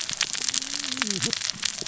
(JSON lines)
{"label": "biophony, cascading saw", "recorder": "SoundTrap 600 or HydroMoth"}